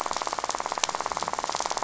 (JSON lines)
{"label": "biophony, rattle", "recorder": "SoundTrap 500"}